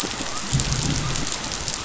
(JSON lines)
{"label": "biophony", "recorder": "SoundTrap 500"}